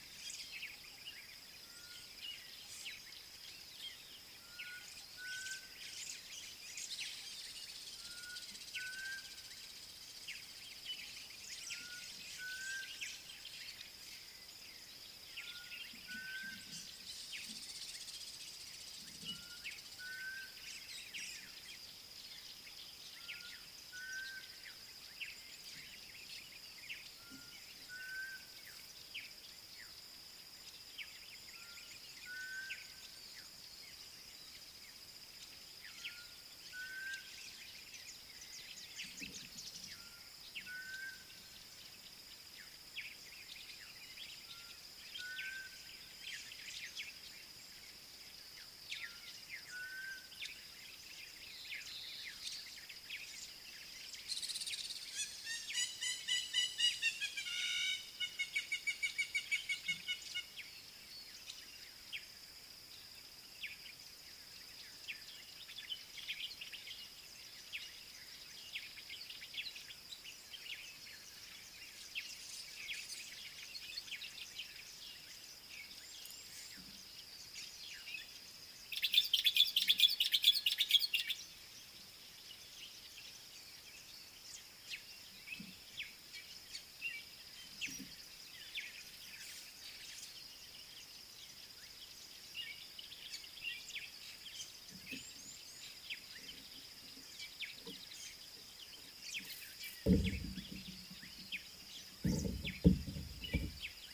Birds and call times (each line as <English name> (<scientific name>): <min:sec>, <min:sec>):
Black Cuckoo (Cuculus clamosus): 0:09.0, 0:12.6, 0:16.3, 0:24.2, 0:28.1, 0:32.5
Gray-headed Kingfisher (Halcyon leucocephala): 0:54.6
Hamerkop (Scopus umbretta): 0:55.5, 0:59.2
Common Bulbul (Pycnonotus barbatus): 1:20.3